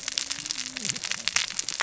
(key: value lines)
label: biophony, cascading saw
recorder: SoundTrap 600 or HydroMoth